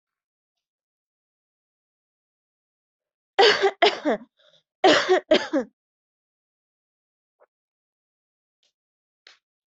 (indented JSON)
{
  "expert_labels": [
    {
      "quality": "good",
      "cough_type": "dry",
      "dyspnea": false,
      "wheezing": false,
      "stridor": false,
      "choking": false,
      "congestion": false,
      "nothing": false,
      "diagnosis": "healthy cough",
      "severity": "pseudocough/healthy cough"
    }
  ],
  "age": 34,
  "gender": "female",
  "respiratory_condition": true,
  "fever_muscle_pain": false,
  "status": "symptomatic"
}